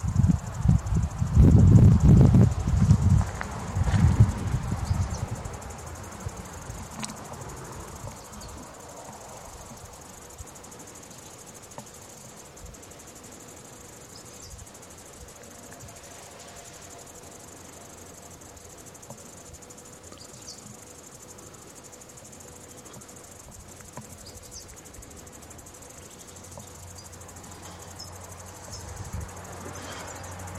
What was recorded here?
Tettigettalna argentata, a cicada